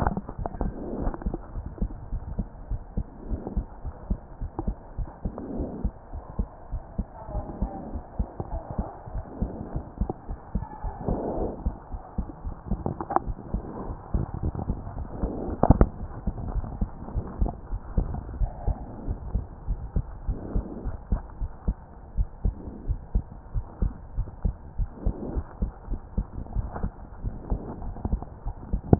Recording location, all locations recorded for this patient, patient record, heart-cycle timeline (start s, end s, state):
pulmonary valve (PV)
aortic valve (AV)+pulmonary valve (PV)+tricuspid valve (TV)+tricuspid valve (TV)+mitral valve (MV)
#Age: Child
#Sex: Male
#Height: 107.0 cm
#Weight: 18.2 kg
#Pregnancy status: False
#Murmur: Absent
#Murmur locations: nan
#Most audible location: nan
#Systolic murmur timing: nan
#Systolic murmur shape: nan
#Systolic murmur grading: nan
#Systolic murmur pitch: nan
#Systolic murmur quality: nan
#Diastolic murmur timing: nan
#Diastolic murmur shape: nan
#Diastolic murmur grading: nan
#Diastolic murmur pitch: nan
#Diastolic murmur quality: nan
#Outcome: Normal
#Campaign: 2014 screening campaign
0.00	1.00	unannotated
1.00	1.12	S1
1.12	1.26	systole
1.26	1.38	S2
1.38	1.56	diastole
1.56	1.66	S1
1.66	1.80	systole
1.80	1.90	S2
1.90	2.12	diastole
2.12	2.22	S1
2.22	2.36	systole
2.36	2.46	S2
2.46	2.70	diastole
2.70	2.80	S1
2.80	2.96	systole
2.96	3.06	S2
3.06	3.30	diastole
3.30	3.40	S1
3.40	3.56	systole
3.56	3.66	S2
3.66	3.86	diastole
3.86	3.94	S1
3.94	4.08	systole
4.08	4.20	S2
4.20	4.42	diastole
4.42	4.50	S1
4.50	4.64	systole
4.64	4.76	S2
4.76	4.98	diastole
4.98	5.08	S1
5.08	5.24	systole
5.24	5.32	S2
5.32	5.56	diastole
5.56	5.70	S1
5.70	5.82	systole
5.82	5.92	S2
5.92	6.14	diastole
6.14	6.22	S1
6.22	6.38	systole
6.38	6.48	S2
6.48	6.72	diastole
6.72	6.82	S1
6.82	6.98	systole
6.98	7.06	S2
7.06	7.34	diastole
7.34	7.44	S1
7.44	7.60	systole
7.60	7.70	S2
7.70	7.92	diastole
7.92	8.04	S1
8.04	8.18	systole
8.18	8.28	S2
8.28	8.52	diastole
8.52	8.62	S1
8.62	8.78	systole
8.78	8.86	S2
8.86	9.14	diastole
9.14	9.24	S1
9.24	9.40	systole
9.40	9.52	S2
9.52	9.74	diastole
9.74	9.84	S1
9.84	10.00	systole
10.00	10.10	S2
10.10	10.30	diastole
10.30	10.38	S1
10.38	10.54	systole
10.54	10.66	S2
10.66	10.86	diastole
10.86	10.94	S1
10.94	11.06	systole
11.06	11.18	S2
11.18	11.38	diastole
11.38	11.50	S1
11.50	11.64	systole
11.64	11.76	S2
11.76	11.94	diastole
11.94	12.02	S1
12.02	12.18	systole
12.18	12.26	S2
12.26	12.46	diastole
12.46	28.99	unannotated